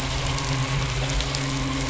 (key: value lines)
label: biophony, midshipman
recorder: SoundTrap 500

label: anthrophony, boat engine
recorder: SoundTrap 500